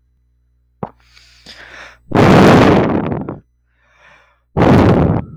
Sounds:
Sigh